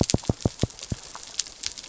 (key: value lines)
label: biophony
recorder: SoundTrap 300